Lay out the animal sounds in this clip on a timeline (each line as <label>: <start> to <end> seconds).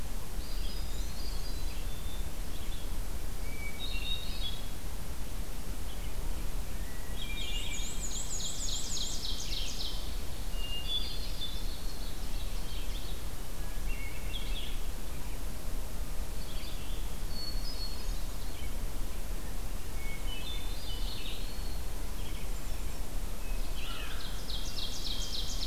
Red-eyed Vireo (Vireo olivaceus): 0.0 to 25.7 seconds
Eastern Wood-Pewee (Contopus virens): 0.3 to 1.6 seconds
Hermit Thrush (Catharus guttatus): 1.0 to 2.4 seconds
Hermit Thrush (Catharus guttatus): 3.3 to 4.9 seconds
Hermit Thrush (Catharus guttatus): 6.9 to 8.1 seconds
Black-and-white Warbler (Mniotilta varia): 7.2 to 9.2 seconds
Ovenbird (Seiurus aurocapilla): 7.7 to 10.2 seconds
Hermit Thrush (Catharus guttatus): 10.4 to 11.5 seconds
Ovenbird (Seiurus aurocapilla): 11.3 to 13.1 seconds
Hermit Thrush (Catharus guttatus): 13.4 to 14.7 seconds
Hermit Thrush (Catharus guttatus): 17.2 to 18.5 seconds
Hermit Thrush (Catharus guttatus): 19.9 to 21.0 seconds
Eastern Wood-Pewee (Contopus virens): 20.6 to 22.0 seconds
Hermit Thrush (Catharus guttatus): 22.0 to 23.2 seconds
American Crow (Corvus brachyrhynchos): 23.7 to 24.4 seconds
Ovenbird (Seiurus aurocapilla): 24.0 to 25.7 seconds